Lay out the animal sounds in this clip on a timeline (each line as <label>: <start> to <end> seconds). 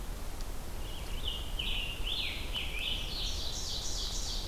Scarlet Tanager (Piranga olivacea): 0.5 to 3.9 seconds
Ovenbird (Seiurus aurocapilla): 2.7 to 4.5 seconds